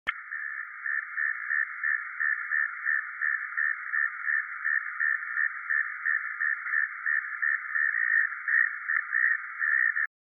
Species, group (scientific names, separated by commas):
Neocurtilla hexadactyla, Orthoptera